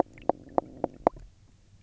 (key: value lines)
label: biophony, knock
recorder: SoundTrap 300